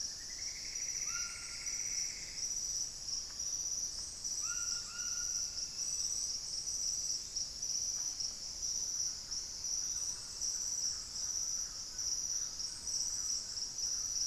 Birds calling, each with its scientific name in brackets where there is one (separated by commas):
Thrush-like Wren (Campylorhynchus turdinus), Plumbeous Antbird (Myrmelastes hyperythrus), White-throated Toucan (Ramphastos tucanus)